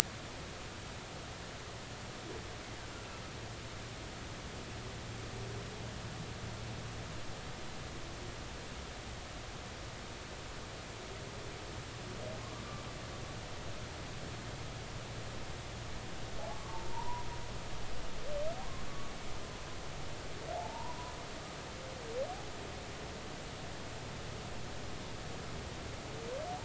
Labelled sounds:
16.5	17.3	humpback whale, 0.83 to 1.2 kHz
20.5	21.1	humpback whale, 0.80 to 1.0 kHz

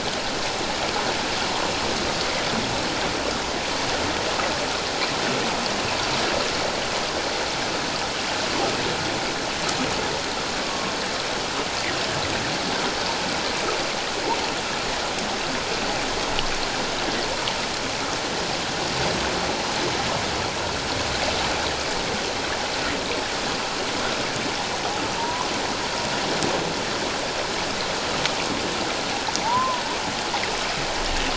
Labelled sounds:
10.6	10.9	humpback whale, 1.0 to 1.2 kHz
25.2	25.5	humpback whale, 0.88 to 1.2 kHz
29.4	29.8	humpback whale, 0.78 to 1.1 kHz

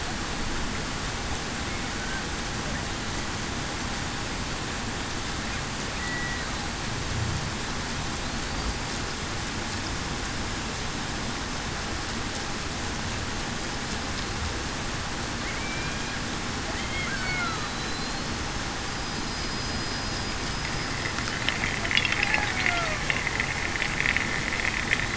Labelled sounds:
6.0	6.4	killer whale, Bigg's (transient), 1.9 to 2.0 kHz
15.6	16.0	killer whale, Bigg's (transient), 2.3 to 2.4 kHz
17.3	17.7	killer whale, Bigg's (transient), 1.2 to 1.5 kHz
19.3	19.9	killer whale, Bigg's (transient), 4.9 to 5.0 kHz
22.5	23.0	killer whale, Bigg's (transient), 0.58 to 0.75 kHz

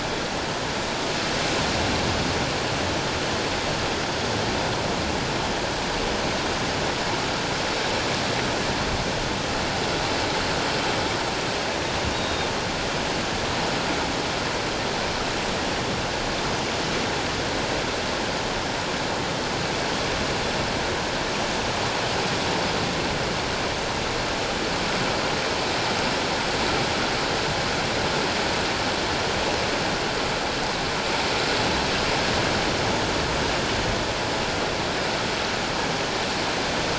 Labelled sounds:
12.1	12.5	Pacific white-sided dolphin, 3.6 to 3.8 kHz

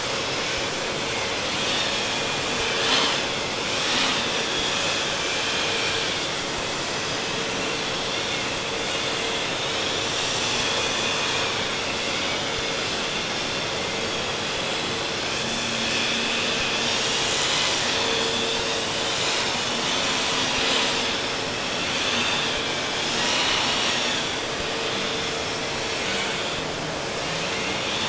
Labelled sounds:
1.3	6.4	vessel noise, 0.88 to 8.0 kHz
7.8	13.4	vessel noise, 1.4 to 7.7 kHz
15.5	25.3	vessel noise, 0.51 to 8.0 kHz

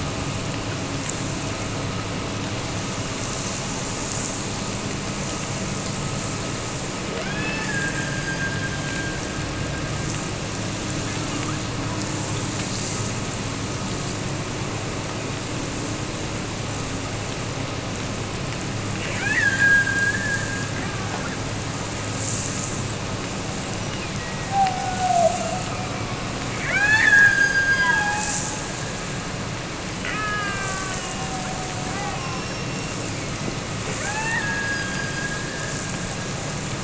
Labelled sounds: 7.1	9.2	killer whale, Bigg's (transient), Gulf of Alaska transient, 0.34 to 7.0 kHz
19.2	20.7	killer whale, Bigg's (transient), Gulf of Alaska transient, 1.3 to 3.7 kHz
24.4	25.7	killer whale, Bigg's (transient), Gulf of Alaska transient, 0.52 to 0.96 kHz
26.6	28.5	killer whale, Bigg's (transient), Gulf of Alaska transient, 0.59 to 6.7 kHz
29.9	31.2	killer whale, Bigg's (transient), Gulf of Alaska transient, 1.0 to 3.1 kHz
31.9	33.6	killer whale, Bigg's (transient), Gulf of Alaska transient, 0.77 to 5.7 kHz
34.0	36.2	killer whale, Bigg's (transient), Gulf of Alaska transient, 0.61 to 6.7 kHz

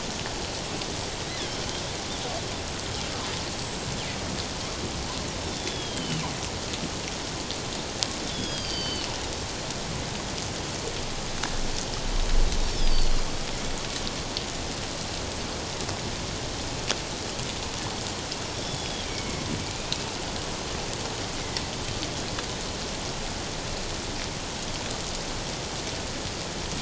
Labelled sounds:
1.3	1.5	killer whale, northern resident, G clan, 1.6 to 2.2 kHz
3.5	3.9	killer whale, northern resident, G clan, 7.5 to 7.9 kHz
5.4	6.2	killer whale, northern resident, G clan, 2.9 to 5.2 kHz
8.2	9.1	killer whale, northern resident, G clan, 2.8 to 5.2 kHz
12.6	13.2	killer whale, northern resident, G clan, 3.2 to 5.4 kHz
18.5	20.1	killer whale, northern resident, G clan, 2.1 to 3.5 kHz

